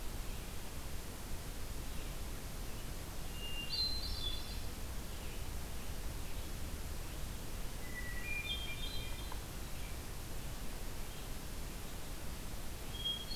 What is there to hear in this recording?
Red-eyed Vireo, Hermit Thrush